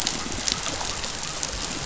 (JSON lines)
{"label": "biophony", "recorder": "SoundTrap 500"}